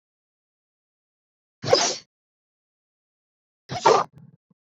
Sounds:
Sneeze